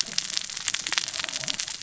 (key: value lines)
label: biophony, cascading saw
recorder: SoundTrap 600 or HydroMoth